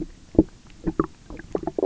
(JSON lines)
{"label": "biophony, knock croak", "recorder": "SoundTrap 300"}